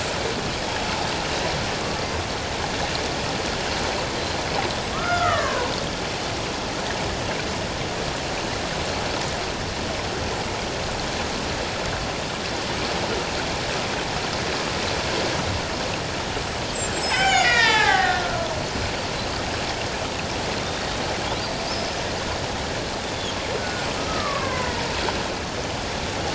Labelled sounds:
4.9	5.7	killer whale, Bigg's (transient), 0.84 to 2.1 kHz
16.4	18.5	killer whale, Bigg's (transient), 0.78 to 8.0 kHz
23.6	24.7	killer whale, Bigg's (transient), 0.94 to 2.2 kHz

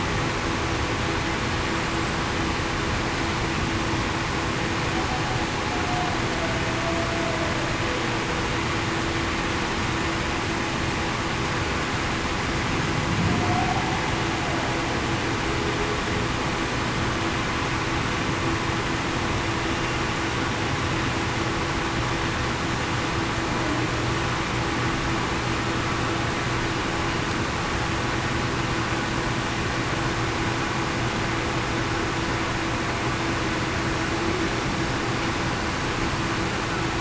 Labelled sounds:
13.4	13.7	humpback whale, 0.70 to 0.80 kHz

